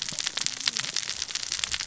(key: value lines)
label: biophony, cascading saw
recorder: SoundTrap 600 or HydroMoth